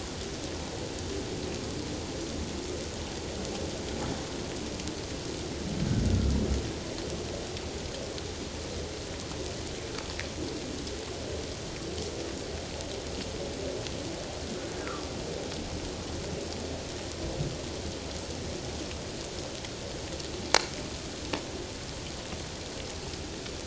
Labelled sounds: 14.8	15.1	humpback whale, 1.1 to 1.4 kHz

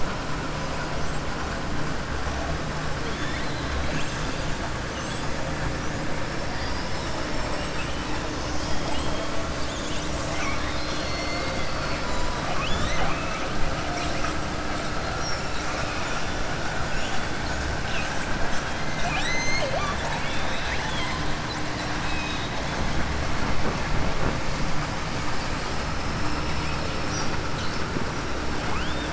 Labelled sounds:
6.5	7.2	killer whale, southern resident, 4.3 to 5.7 kHz
10.2	12.0	killer whale, southern resident, 1.1 to 6.2 kHz
15.1	16.2	killer whale, southern resident, 4.1 to 7.1 kHz
21.9	22.5	killer whale, southern resident, 2.0 to 3.9 kHz
28.6	29.1	killer whale, southern resident, 0.74 to 3.7 kHz

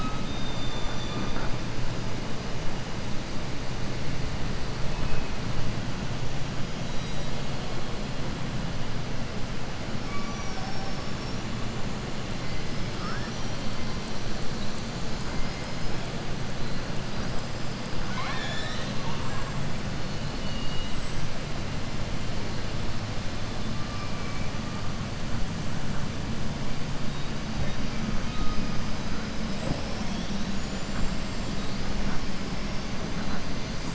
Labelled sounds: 10.0	11.4	killer whale, southern resident, 0.73 to 6.0 kHz
12.9	13.6	killer whale, southern resident, 4.5 to 6.8 kHz
18.0	19.1	killer whale, southern resident, 0.76 to 7.9 kHz
20.0	21.0	killer whale, southern resident, 2.0 to 5.0 kHz

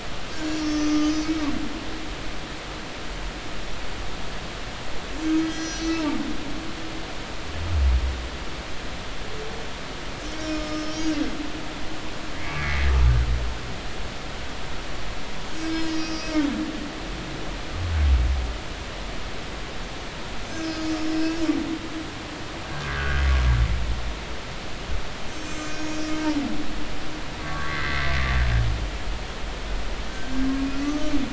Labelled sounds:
0.3	1.4	humpback whale, 1.5 to 7.0 kHz
5.4	6.0	humpback whale, 1.5 to 6.8 kHz
10.2	11.2	humpback whale, 1.2 to 6.9 kHz
12.4	12.9	humpback whale, 2.0 to 2.3 kHz
15.7	16.4	humpback whale, 4.6 to 6.8 kHz
20.6	21.3	humpback whale, 5.0 to 5.3 kHz
22.7	23.2	humpback whale, 1.4 to 1.7 kHz
25.3	26.2	humpback whale, 5.5 to 8.0 kHz
27.4	28.0	humpback whale, 1.1 to 2.1 kHz
30.6	31.1	humpback whale, 1.1 to 6.4 kHz

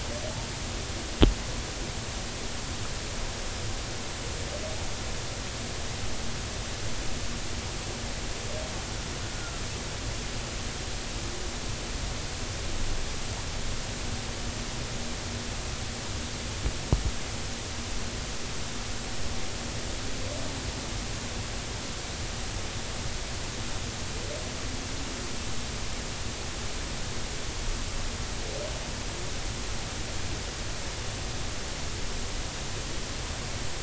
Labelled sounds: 9.3	9.6	killer whale, 1.3 to 1.5 kHz

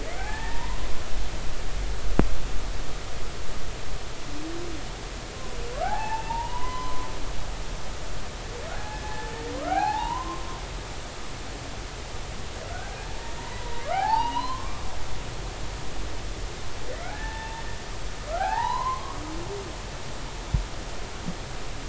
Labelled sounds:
0.2	0.8	humpback whale, 0.80 to 1.9 kHz
5.8	7.1	humpback whale, 0.80 to 3.1 kHz
8.7	10.6	humpback whale, 0.80 to 2.6 kHz
13.0	14.9	humpback whale, 0.80 to 4.2 kHz
17.1	17.6	humpback whale, 0.80 to 1.8 kHz
18.3	19.2	humpback whale, 0.80 to 4.2 kHz

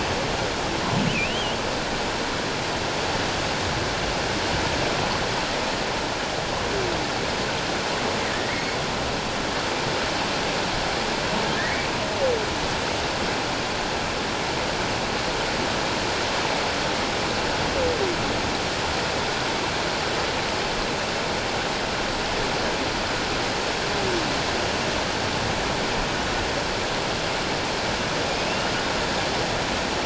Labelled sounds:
1.1	1.6	humpback whale, 2.3 to 3.3 kHz
8.5	8.8	humpback whale, 2.1 to 2.3 kHz
11.5	11.8	humpback whale, 1.6 to 2.0 kHz
28.4	28.7	humpback whale, 2.5 to 3.0 kHz

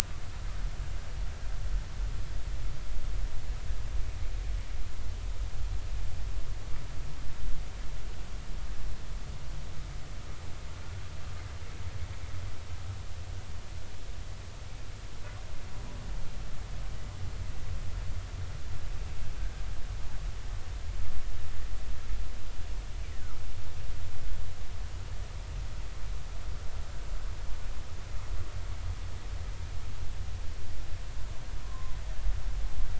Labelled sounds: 31.6	32.0	humpback whale, 0.96 to 1.1 kHz

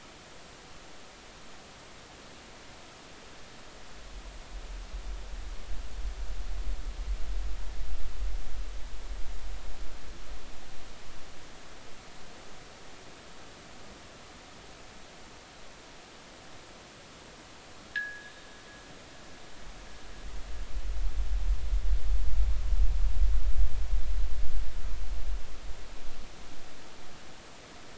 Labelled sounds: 17.9	18.4	fishing gear, 1.5 to 1.9 kHz

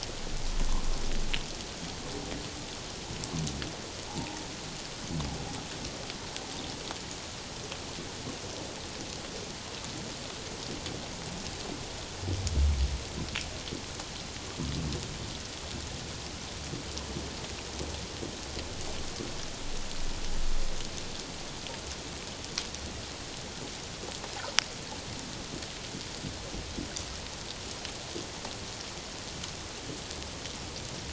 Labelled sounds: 4.1	4.4	humpback whale, 0.78 to 0.97 kHz

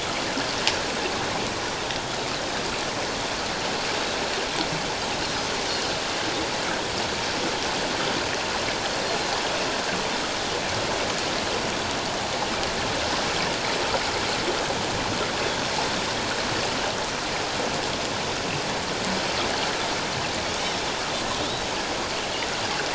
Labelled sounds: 21.4	21.7	Pacific white-sided dolphin, 3.4 to 3.9 kHz

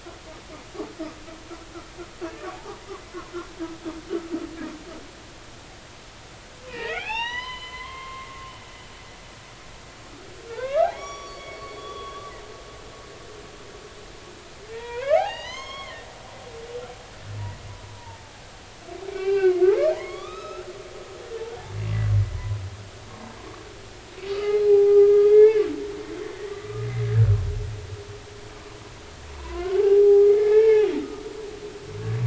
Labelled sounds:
2.5	2.8	humpback whale, 0.80 to 1.3 kHz
6.7	8.3	humpback whale, 0.80 to 6.1 kHz
10.5	12.2	humpback whale, 0.80 to 5.7 kHz
14.7	16.1	humpback whale, 0.80 to 6.6 kHz
18.0	20.7	humpback whale, 0.83 to 5.3 kHz
22.3	22.6	humpback whale, 0.93 to 1.1 kHz
24.3	25.6	humpback whale, 0.80 to 4.2 kHz
26.5	26.9	humpback whale, 1.1 to 1.3 kHz
29.4	31.2	humpback whale, 0.80 to 3.1 kHz

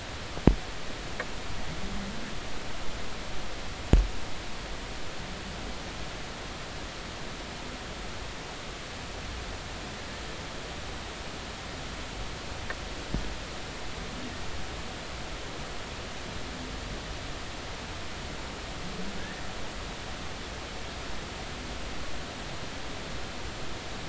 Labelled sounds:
19.2	19.4	humpback whale, 1.5 to 1.9 kHz

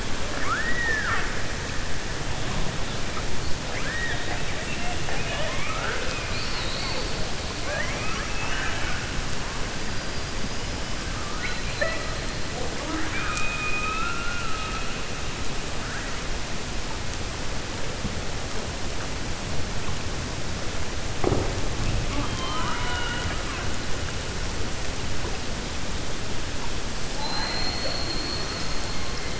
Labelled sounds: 0.3	1.3	killer whale, 0.30 to 2.7 kHz
22.0	23.7	killer whale, 0.30 to 4.1 kHz

